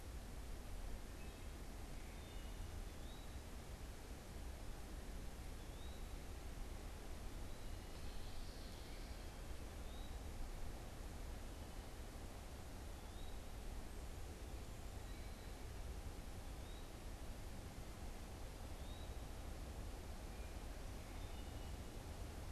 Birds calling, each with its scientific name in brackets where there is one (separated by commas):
Common Yellowthroat (Geothlypis trichas), Eastern Wood-Pewee (Contopus virens), Wood Thrush (Hylocichla mustelina)